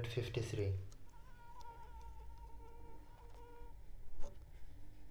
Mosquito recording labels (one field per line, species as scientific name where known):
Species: Anopheles arabiensis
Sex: female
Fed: unfed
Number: one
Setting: cup